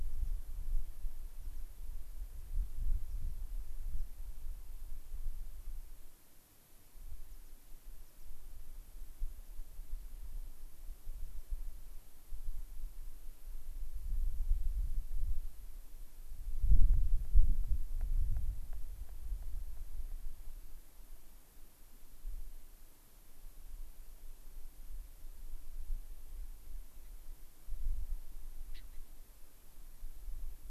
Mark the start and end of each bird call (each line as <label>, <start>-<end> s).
American Pipit (Anthus rubescens), 0.0-0.3 s
American Pipit (Anthus rubescens), 1.3-1.6 s
American Pipit (Anthus rubescens), 3.0-3.1 s
American Pipit (Anthus rubescens), 3.9-4.0 s
American Pipit (Anthus rubescens), 7.2-7.5 s
American Pipit (Anthus rubescens), 8.0-8.2 s
Gray-crowned Rosy-Finch (Leucosticte tephrocotis), 28.6-29.0 s